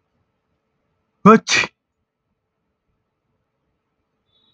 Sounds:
Sneeze